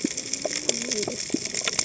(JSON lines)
{"label": "biophony, cascading saw", "recorder": "HydroMoth"}